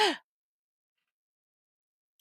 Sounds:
Laughter